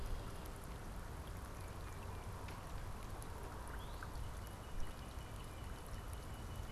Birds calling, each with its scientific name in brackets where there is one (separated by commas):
Tufted Titmouse (Baeolophus bicolor), Northern Cardinal (Cardinalis cardinalis)